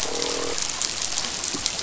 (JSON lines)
{"label": "biophony, croak", "recorder": "SoundTrap 500"}